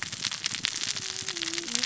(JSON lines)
{"label": "biophony, cascading saw", "recorder": "SoundTrap 600 or HydroMoth"}